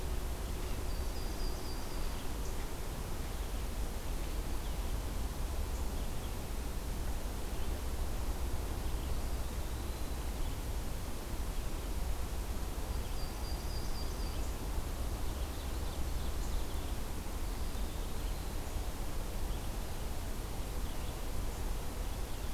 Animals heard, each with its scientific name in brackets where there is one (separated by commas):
Eastern Wood-Pewee (Contopus virens), Red-eyed Vireo (Vireo olivaceus), Yellow-rumped Warbler (Setophaga coronata), Ovenbird (Seiurus aurocapilla)